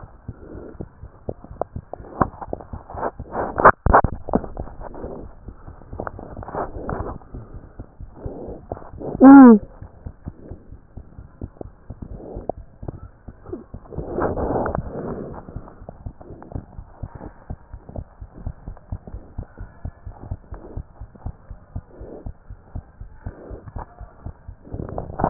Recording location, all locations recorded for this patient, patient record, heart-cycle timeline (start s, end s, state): pulmonary valve (PV)
aortic valve (AV)+pulmonary valve (PV)+tricuspid valve (TV)+mitral valve (MV)
#Age: Infant
#Sex: Male
#Height: 87.0 cm
#Weight: 12.5 kg
#Pregnancy status: False
#Murmur: Absent
#Murmur locations: nan
#Most audible location: nan
#Systolic murmur timing: nan
#Systolic murmur shape: nan
#Systolic murmur grading: nan
#Systolic murmur pitch: nan
#Systolic murmur quality: nan
#Diastolic murmur timing: nan
#Diastolic murmur shape: nan
#Diastolic murmur grading: nan
#Diastolic murmur pitch: nan
#Diastolic murmur quality: nan
#Outcome: Abnormal
#Campaign: 2015 screening campaign
0.00	18.52	unannotated
18.52	18.66	systole
18.66	18.78	S2
18.78	18.90	diastole
18.90	19.02	S1
19.02	19.12	systole
19.12	19.22	S2
19.22	19.36	diastole
19.36	19.48	S1
19.48	19.60	systole
19.60	19.70	S2
19.70	19.84	diastole
19.84	19.94	S1
19.94	20.04	systole
20.04	20.14	S2
20.14	20.28	diastole
20.28	20.38	S1
20.38	20.50	systole
20.50	20.60	S2
20.60	20.74	diastole
20.74	20.86	S1
20.86	20.98	systole
20.98	21.08	S2
21.08	21.22	diastole
21.22	21.36	S1
21.36	21.48	systole
21.48	21.58	S2
21.58	21.72	diastole
21.72	21.82	S1
21.82	21.98	systole
21.98	22.08	S2
22.08	22.24	diastole
22.24	22.36	S1
22.36	22.48	systole
22.48	22.58	S2
22.58	22.72	diastole
22.72	22.86	S1
22.86	22.98	systole
22.98	23.08	S2
23.08	23.24	diastole
23.24	23.34	S1
23.34	23.48	systole
23.48	23.60	S2
23.60	23.72	diastole
23.72	23.86	S1
23.86	24.00	systole
24.00	24.10	S2
24.10	24.24	diastole
24.24	24.36	S1
24.36	24.46	systole
24.46	24.50	S2
24.50	25.30	unannotated